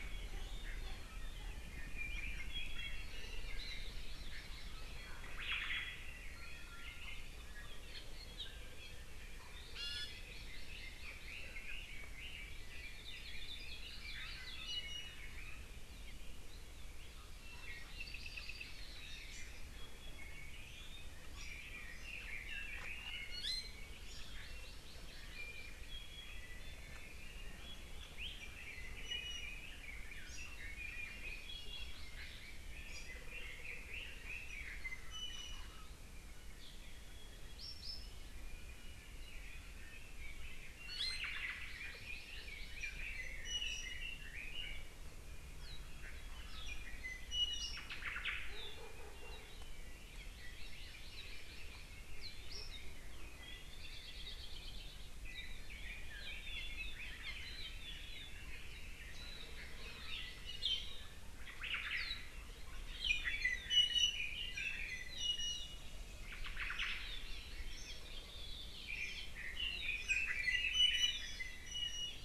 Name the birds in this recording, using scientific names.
Drepanis coccinea, Chlorodrepanis virens, Myadestes obscurus, Leiothrix lutea, Loxops coccineus, Loxops mana